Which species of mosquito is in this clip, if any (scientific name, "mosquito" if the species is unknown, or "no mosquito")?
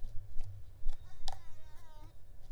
Mansonia africanus